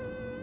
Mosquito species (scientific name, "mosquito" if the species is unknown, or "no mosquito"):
Anopheles dirus